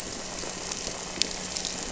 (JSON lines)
{"label": "anthrophony, boat engine", "recorder": "SoundTrap 300"}